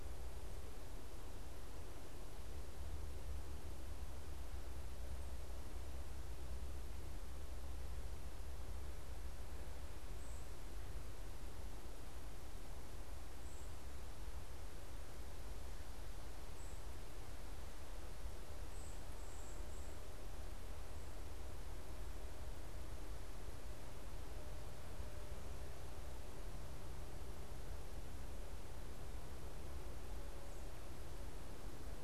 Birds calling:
unidentified bird

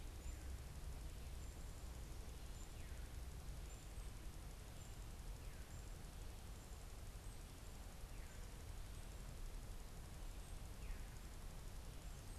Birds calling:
unidentified bird

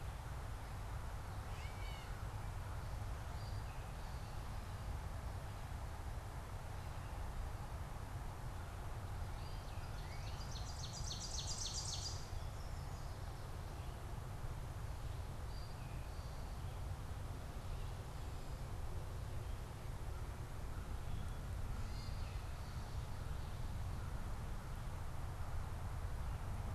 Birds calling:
Yellow Warbler (Setophaga petechia), Northern Cardinal (Cardinalis cardinalis), Ovenbird (Seiurus aurocapilla), Gray Catbird (Dumetella carolinensis), Eastern Towhee (Pipilo erythrophthalmus)

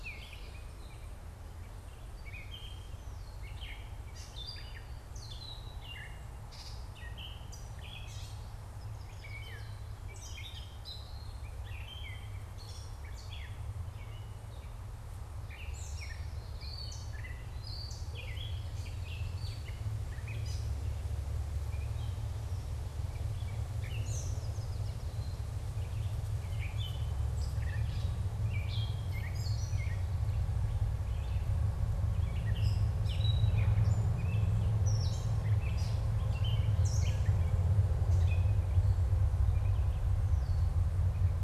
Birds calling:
Gray Catbird (Dumetella carolinensis), Common Yellowthroat (Geothlypis trichas), Yellow Warbler (Setophaga petechia)

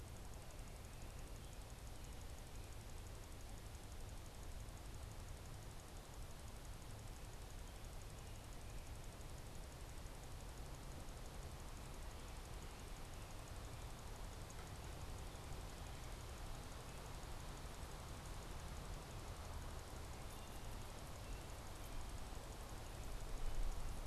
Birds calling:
American Robin (Turdus migratorius)

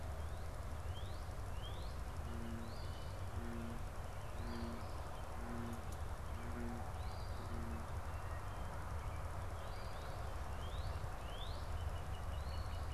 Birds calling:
Northern Cardinal (Cardinalis cardinalis), Eastern Phoebe (Sayornis phoebe)

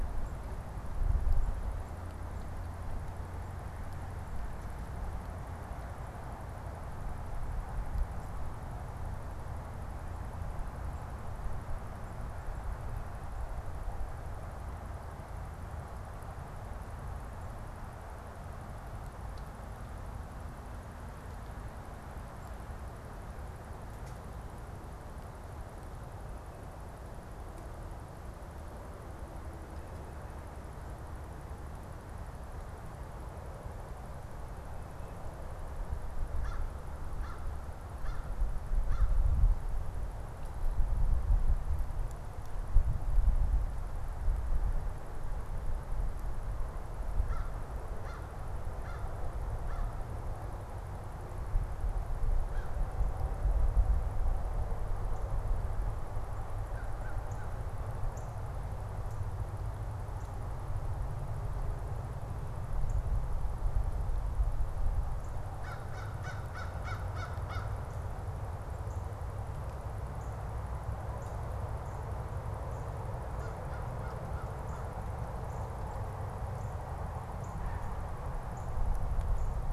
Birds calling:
Northern Cardinal (Cardinalis cardinalis), American Crow (Corvus brachyrhynchos)

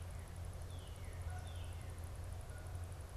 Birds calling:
Canada Goose (Branta canadensis), Northern Cardinal (Cardinalis cardinalis)

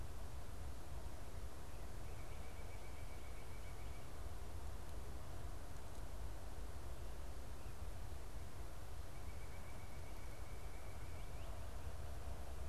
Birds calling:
Northern Cardinal (Cardinalis cardinalis), White-breasted Nuthatch (Sitta carolinensis)

